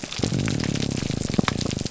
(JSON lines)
{"label": "biophony", "recorder": "SoundTrap 300"}